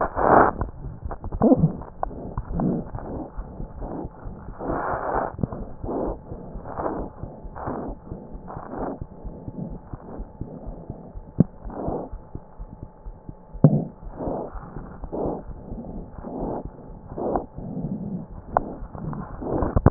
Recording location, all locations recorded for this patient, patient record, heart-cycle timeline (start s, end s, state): aortic valve (AV)
aortic valve (AV)+mitral valve (MV)
#Age: Infant
#Sex: Male
#Height: 38.0 cm
#Weight: 24.0 kg
#Pregnancy status: False
#Murmur: Absent
#Murmur locations: nan
#Most audible location: nan
#Systolic murmur timing: nan
#Systolic murmur shape: nan
#Systolic murmur grading: nan
#Systolic murmur pitch: nan
#Systolic murmur quality: nan
#Diastolic murmur timing: nan
#Diastolic murmur shape: nan
#Diastolic murmur grading: nan
#Diastolic murmur pitch: nan
#Diastolic murmur quality: nan
#Outcome: Normal
#Campaign: 2015 screening campaign
0.00	9.20	unannotated
9.20	9.31	S1
9.31	9.44	systole
9.44	9.53	S2
9.53	9.68	diastole
9.68	9.79	S1
9.79	9.90	systole
9.90	9.98	S2
9.98	10.16	diastole
10.16	10.25	S1
10.25	10.39	systole
10.39	10.46	S2
10.46	10.64	diastole
10.64	10.72	S1
10.72	10.87	systole
10.87	10.95	S2
10.95	11.12	diastole
11.12	11.22	S1
11.22	11.36	systole
11.36	11.43	S2
11.43	11.63	diastole
11.63	11.72	S1
11.72	11.85	systole
11.85	11.92	S2
11.92	12.10	diastole
12.10	12.18	S1
12.18	12.32	systole
12.32	12.42	S2
12.42	12.58	diastole
12.58	12.67	S1
12.67	12.81	systole
12.81	12.87	S2
12.87	13.03	diastole
13.03	13.11	S1
13.11	13.26	systole
13.26	13.33	S2
13.33	13.52	diastole
13.52	13.60	S1
13.60	19.90	unannotated